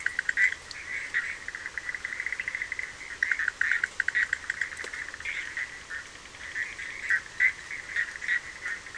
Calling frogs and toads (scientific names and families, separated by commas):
Boana bischoffi (Hylidae)